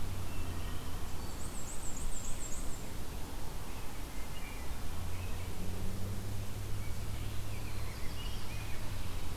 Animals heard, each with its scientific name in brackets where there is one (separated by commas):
Rose-breasted Grosbeak (Pheucticus ludovicianus), Wood Thrush (Hylocichla mustelina), Black-throated Blue Warbler (Setophaga caerulescens), Black-and-white Warbler (Mniotilta varia)